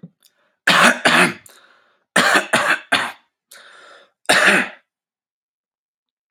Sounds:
Cough